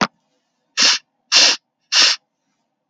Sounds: Sniff